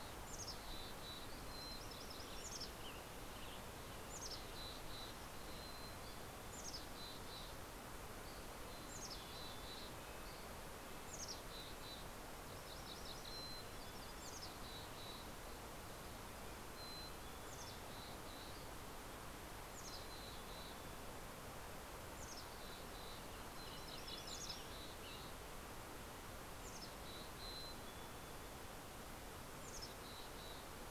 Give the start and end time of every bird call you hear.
[0.00, 1.40] Mountain Chickadee (Poecile gambeli)
[1.10, 2.80] MacGillivray's Warbler (Geothlypis tolmiei)
[2.10, 4.10] Western Tanager (Piranga ludoviciana)
[2.20, 10.20] Mountain Chickadee (Poecile gambeli)
[5.60, 6.30] Dusky Flycatcher (Empidonax oberholseri)
[7.70, 8.70] Dusky Flycatcher (Empidonax oberholseri)
[9.60, 12.60] Red-breasted Nuthatch (Sitta canadensis)
[10.80, 12.10] Mountain Chickadee (Poecile gambeli)
[12.10, 13.80] MacGillivray's Warbler (Geothlypis tolmiei)
[13.30, 15.40] Mountain Chickadee (Poecile gambeli)
[16.30, 18.80] Mountain Chickadee (Poecile gambeli)
[19.40, 23.40] Mountain Chickadee (Poecile gambeli)
[22.40, 25.80] Western Tanager (Piranga ludoviciana)
[23.30, 25.10] MacGillivray's Warbler (Geothlypis tolmiei)
[23.80, 25.70] Mountain Chickadee (Poecile gambeli)
[26.30, 28.60] Mountain Chickadee (Poecile gambeli)
[29.50, 30.90] Mountain Chickadee (Poecile gambeli)

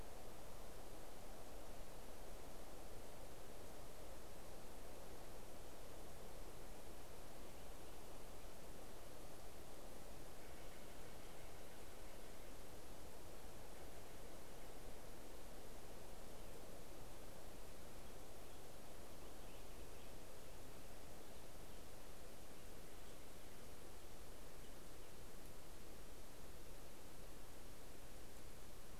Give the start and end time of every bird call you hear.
[9.64, 13.35] Steller's Jay (Cyanocitta stelleri)
[17.34, 25.45] Black-headed Grosbeak (Pheucticus melanocephalus)

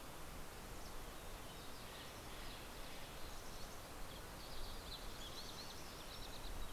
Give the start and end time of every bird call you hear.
[1.26, 3.96] Steller's Jay (Cyanocitta stelleri)
[2.66, 4.76] Mountain Chickadee (Poecile gambeli)
[3.86, 6.72] Green-tailed Towhee (Pipilo chlorurus)

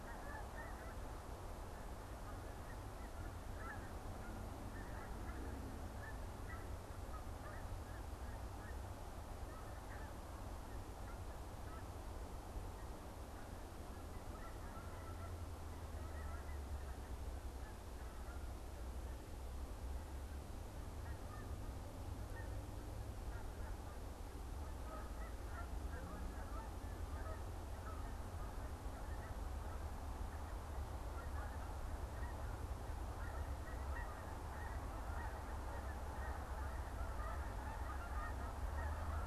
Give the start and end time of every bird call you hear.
[0.00, 39.26] Canada Goose (Branta canadensis)

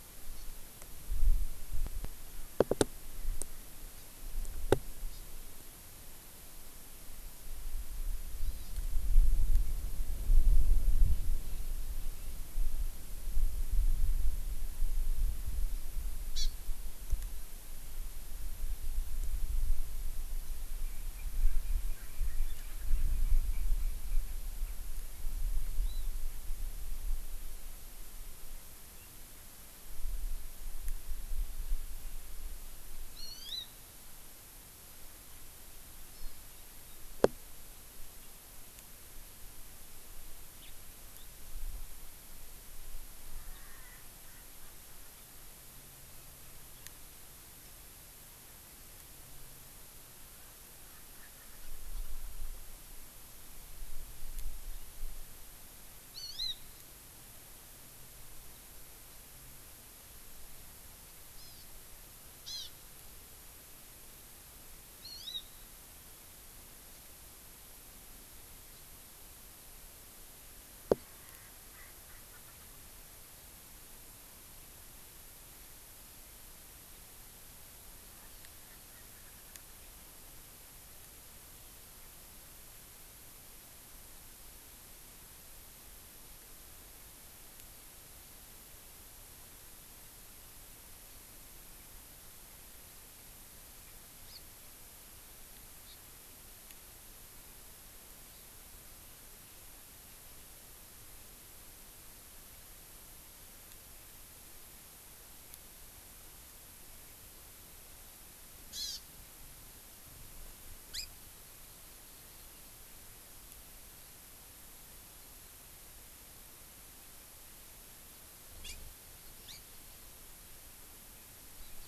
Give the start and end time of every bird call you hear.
[5.00, 5.30] Hawaii Amakihi (Chlorodrepanis virens)
[8.30, 8.70] Hawaii Amakihi (Chlorodrepanis virens)
[16.30, 16.60] Hawaii Amakihi (Chlorodrepanis virens)
[25.60, 26.00] Hawaii Amakihi (Chlorodrepanis virens)
[33.10, 33.70] Hawaii Amakihi (Chlorodrepanis virens)
[56.00, 56.60] Hawaii Amakihi (Chlorodrepanis virens)
[61.30, 61.70] Hawaii Amakihi (Chlorodrepanis virens)
[62.30, 62.70] Hawaii Amakihi (Chlorodrepanis virens)
[64.90, 65.50] Hawaii Amakihi (Chlorodrepanis virens)
[71.20, 72.80] Erckel's Francolin (Pternistis erckelii)
[94.20, 94.40] Hawaii Amakihi (Chlorodrepanis virens)
[95.80, 96.00] Hawaii Amakihi (Chlorodrepanis virens)
[108.60, 109.20] Hawaii Amakihi (Chlorodrepanis virens)

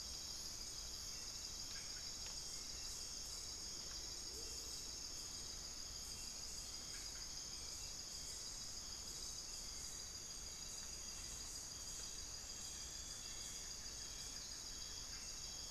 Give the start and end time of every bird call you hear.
[0.00, 4.71] Amazonian Motmot (Momotus momota)
[0.00, 7.41] unidentified bird
[0.00, 7.51] Hauxwell's Thrush (Turdus hauxwelli)
[11.91, 15.71] unidentified bird

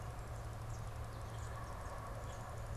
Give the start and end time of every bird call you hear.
[0.00, 2.76] unidentified bird

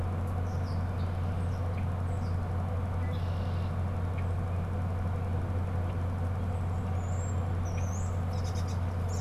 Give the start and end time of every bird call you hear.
[0.00, 2.77] European Starling (Sturnus vulgaris)
[0.00, 9.21] Red-winged Blackbird (Agelaius phoeniceus)
[6.67, 9.21] European Starling (Sturnus vulgaris)

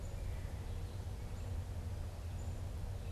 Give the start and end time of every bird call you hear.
[0.00, 3.11] Red-eyed Vireo (Vireo olivaceus)

